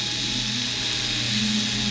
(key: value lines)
label: anthrophony, boat engine
recorder: SoundTrap 500